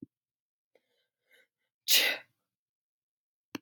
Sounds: Sneeze